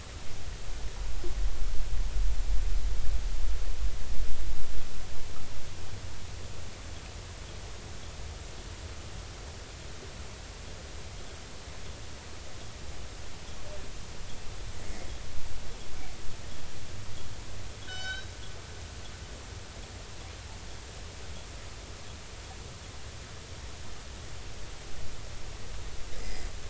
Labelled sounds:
14.8	15.1	killer whale, northern resident, 1.9 to 2.2 kHz
17.9	18.3	killer whale, northern resident, G clan, call N24ii, 1.4 to 6.1 kHz
26.2	26.5	killer whale, northern resident, 1.9 to 5.1 kHz

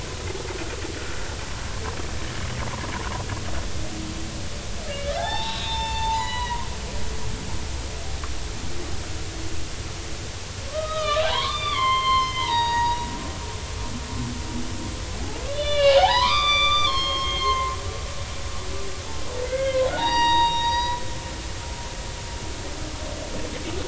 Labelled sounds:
4.9	6.7	humpback whale, 0.80 to 7.0 kHz
10.7	13.1	humpback whale, 0.80 to 6.7 kHz
15.5	17.7	humpback whale, 0.80 to 6.5 kHz
19.4	21.0	humpback whale, 0.80 to 5.8 kHz

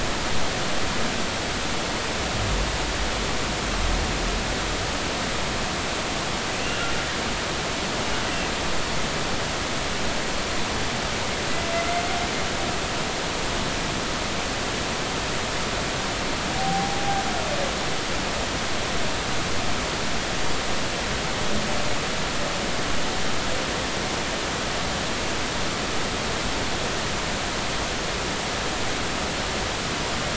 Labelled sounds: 6.5	6.9	humpback whale, 2.6 to 2.9 kHz
16.5	17.0	humpback whale, 0.80 to 0.83 kHz

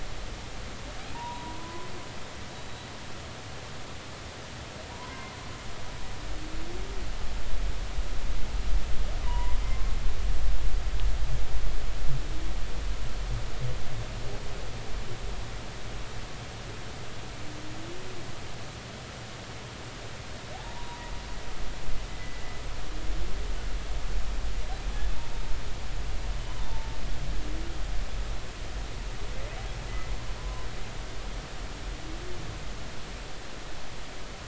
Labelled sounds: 1.1	1.9	humpback whale, 0.83 to 1.1 kHz
4.9	5.3	humpback whale, 0.93 to 1.1 kHz
9.2	10.0	humpback whale, 0.90 to 2.1 kHz
20.5	21.1	humpback whale, 0.80 to 1.1 kHz
22.1	22.6	humpback whale, 1.9 to 2.0 kHz
29.9	30.7	humpback whale, 0.96 to 2.1 kHz

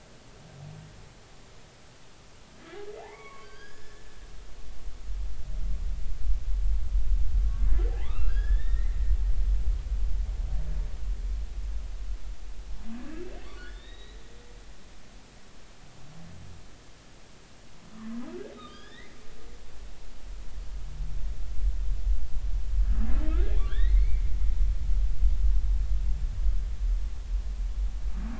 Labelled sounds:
2.6	4.1	humpback whale, 0.80 to 6.9 kHz
4.4	5.0	humpback whale, 4.6 to 5.2 kHz
7.9	9.0	humpback whale, 0.80 to 3.7 kHz
12.9	14.2	humpback whale, 1.4 to 4.0 kHz
18.5	19.2	humpback whale, 1.2 to 5.4 kHz
23.7	24.2	humpback whale, 1.3 to 3.9 kHz

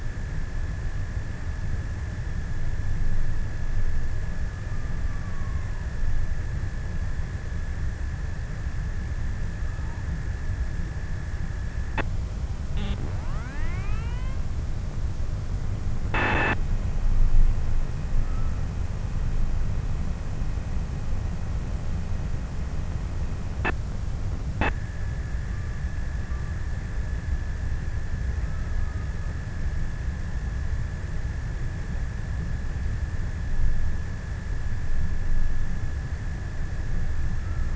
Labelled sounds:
4.1	6.1	killer whale, offshore, 0 to 3.0 kHz
25.2	30.8	killer whale, offshore, 0.41 to 1.9 kHz

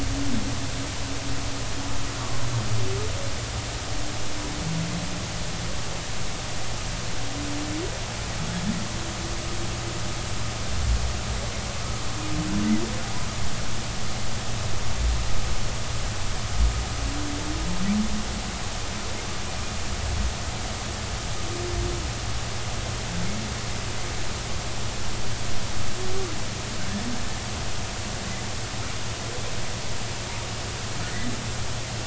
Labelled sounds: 31.0	31.3	humpback whale, 1.7 to 2.1 kHz

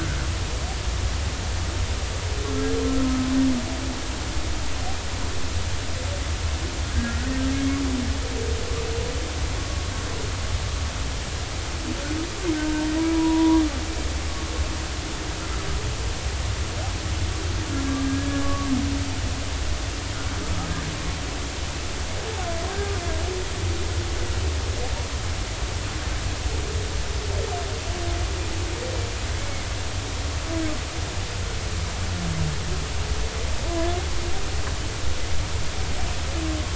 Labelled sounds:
2.9	3.3	humpback whale, 1.2 to 1.3 kHz
6.9	7.2	humpback whale, 1.5 to 1.7 kHz
9.6	9.8	humpback whale, 1.1 to 1.2 kHz
12.6	13.6	humpback whale, 0.90 to 1.6 kHz
18.1	18.7	humpback whale, 1.1 to 1.7 kHz
29.3	29.7	humpback whale, 2.0 to 2.3 kHz

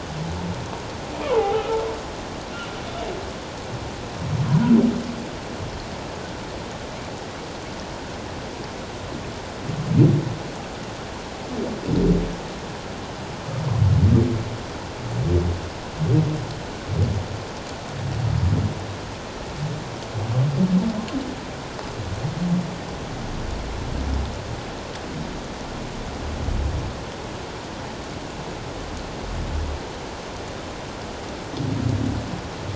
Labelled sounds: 1.2	1.8	humpback whale, 0.78 to 1.4 kHz

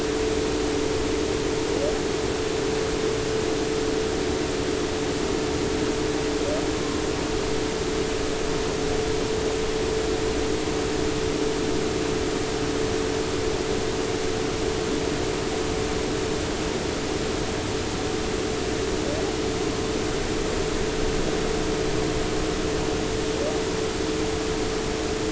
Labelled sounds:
6.7	7.0	humpback whale, 0.99 to 1.1 kHz

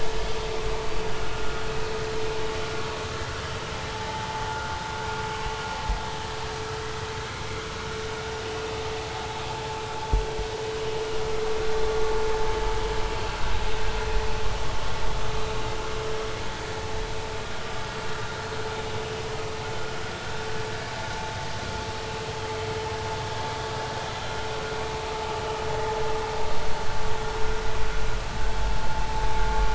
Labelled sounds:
3.9	4.3	vessel noise, 0.80 to 0.93 kHz

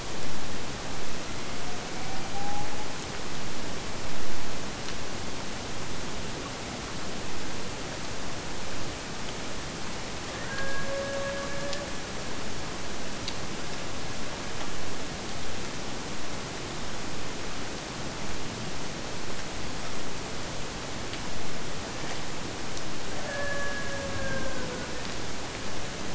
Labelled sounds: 1.1	3.1	killer whale, Bigg's (transient), AT1 transient, 0.53 to 2.7 kHz
10.4	12.1	killer whale, Bigg's (transient), AT1 transient, 0.40 to 2.5 kHz
23.1	25.1	killer whale, Bigg's (transient), AT1 transient, 0.38 to 3.0 kHz

